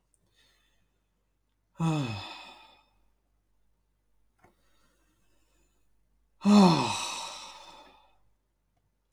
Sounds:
Sigh